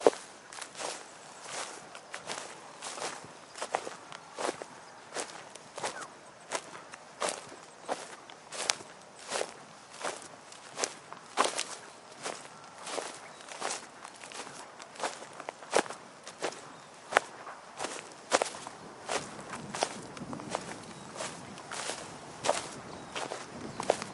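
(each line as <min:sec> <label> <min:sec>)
0:00.0 Dry grass crunches underfoot with each step. 0:24.0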